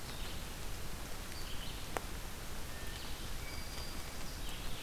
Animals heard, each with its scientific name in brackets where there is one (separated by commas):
Red-eyed Vireo (Vireo olivaceus), Hermit Thrush (Catharus guttatus), Black-throated Green Warbler (Setophaga virens)